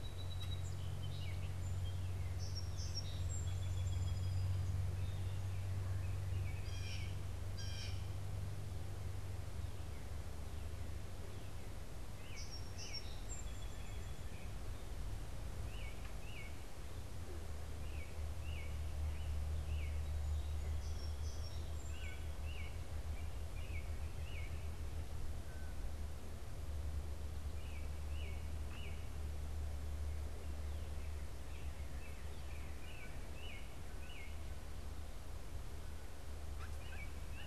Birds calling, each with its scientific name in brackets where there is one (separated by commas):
Blue Jay (Cyanocitta cristata), Song Sparrow (Melospiza melodia), Northern Cardinal (Cardinalis cardinalis), American Robin (Turdus migratorius)